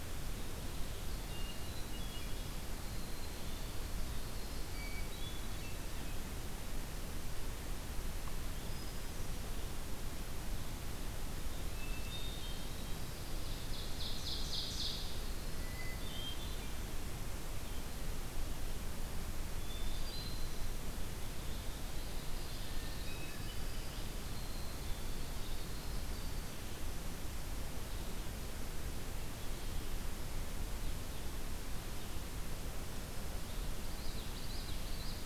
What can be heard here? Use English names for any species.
Winter Wren, Hermit Thrush, Ovenbird, Red-eyed Vireo, Common Yellowthroat